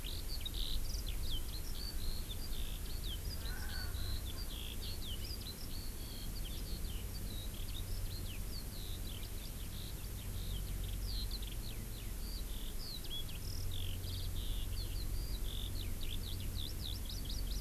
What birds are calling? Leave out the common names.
Alauda arvensis, Pternistis erckelii